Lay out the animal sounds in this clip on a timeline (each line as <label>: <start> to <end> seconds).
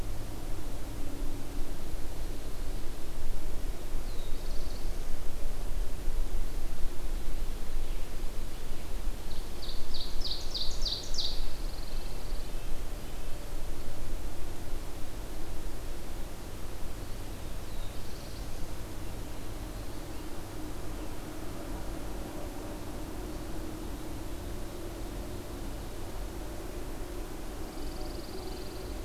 Black-throated Blue Warbler (Setophaga caerulescens): 3.9 to 5.4 seconds
Ovenbird (Seiurus aurocapilla): 9.0 to 11.5 seconds
Pine Warbler (Setophaga pinus): 11.2 to 12.6 seconds
Black-throated Blue Warbler (Setophaga caerulescens): 17.1 to 18.6 seconds
Pine Warbler (Setophaga pinus): 27.6 to 29.0 seconds